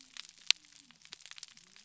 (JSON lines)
{"label": "biophony", "recorder": "SoundTrap 300"}